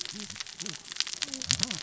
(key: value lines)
label: biophony, cascading saw
recorder: SoundTrap 600 or HydroMoth